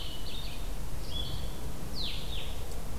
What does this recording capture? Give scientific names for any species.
Vireo solitarius